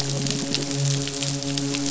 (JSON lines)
{"label": "biophony, midshipman", "recorder": "SoundTrap 500"}